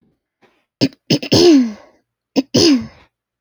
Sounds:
Throat clearing